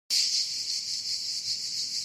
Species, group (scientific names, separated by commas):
Cicada orni, Cicadidae